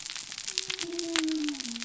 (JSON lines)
{"label": "biophony", "recorder": "SoundTrap 300"}